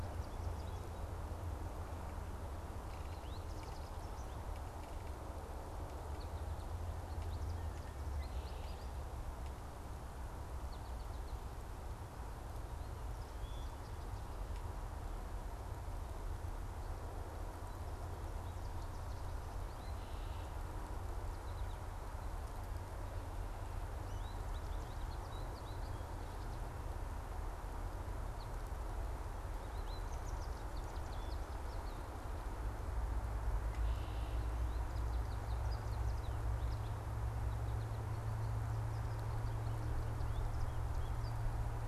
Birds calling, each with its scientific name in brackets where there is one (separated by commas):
American Goldfinch (Spinus tristis)